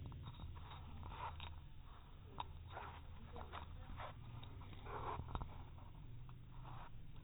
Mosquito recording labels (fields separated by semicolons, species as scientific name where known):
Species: no mosquito; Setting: cup